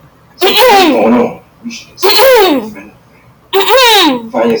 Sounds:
Throat clearing